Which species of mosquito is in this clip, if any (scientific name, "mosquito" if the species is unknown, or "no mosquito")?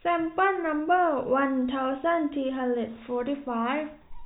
no mosquito